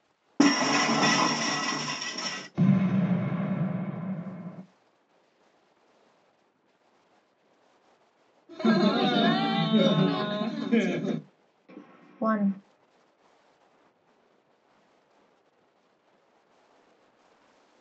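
At the start, glass shatters. Then, about 3 seconds in, there is an explosion. About 8 seconds in, you can hear laughter. About 12 seconds in, a voice says "one".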